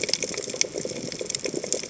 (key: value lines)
label: biophony, chatter
recorder: HydroMoth